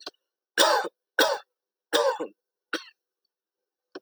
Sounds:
Cough